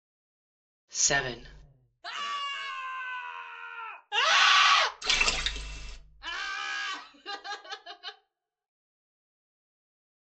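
At 0.95 seconds, someone says "seven". Then, at 2.02 seconds, someone screams. After that, at 4.09 seconds, there is screaming. Later, at 5.01 seconds, you can hear splashing. Finally, at 6.2 seconds, laughter can be heard.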